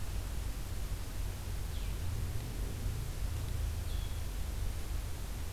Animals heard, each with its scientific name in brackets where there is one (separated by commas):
Blue-headed Vireo (Vireo solitarius)